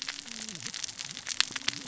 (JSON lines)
{"label": "biophony, cascading saw", "recorder": "SoundTrap 600 or HydroMoth"}